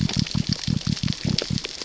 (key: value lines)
label: biophony
recorder: SoundTrap 600 or HydroMoth